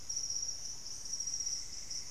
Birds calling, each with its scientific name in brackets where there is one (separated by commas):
Screaming Piha (Lipaugus vociferans), Plumbeous Antbird (Myrmelastes hyperythrus)